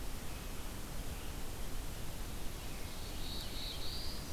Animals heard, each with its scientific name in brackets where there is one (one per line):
Black-throated Blue Warbler (Setophaga caerulescens)